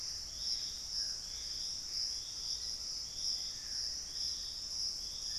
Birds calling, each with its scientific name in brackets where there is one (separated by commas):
Gray Antbird (Cercomacra cinerascens), Dusky-throated Antshrike (Thamnomanes ardesiacus), Black-faced Antthrush (Formicarius analis)